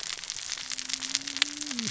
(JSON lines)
{"label": "biophony, cascading saw", "recorder": "SoundTrap 600 or HydroMoth"}